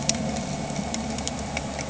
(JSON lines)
{"label": "anthrophony, boat engine", "recorder": "HydroMoth"}